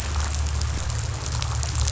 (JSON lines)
{"label": "anthrophony, boat engine", "recorder": "SoundTrap 500"}